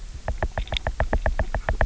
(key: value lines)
label: biophony, knock
recorder: SoundTrap 300